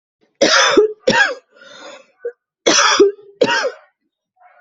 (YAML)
expert_labels:
- quality: good
  cough_type: dry
  dyspnea: false
  wheezing: false
  stridor: false
  choking: false
  congestion: false
  nothing: true
  diagnosis: upper respiratory tract infection
  severity: mild
age: 42
gender: female
respiratory_condition: false
fever_muscle_pain: false
status: healthy